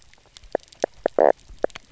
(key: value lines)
label: biophony, knock croak
recorder: SoundTrap 300